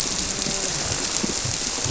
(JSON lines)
{"label": "biophony, grouper", "recorder": "SoundTrap 300"}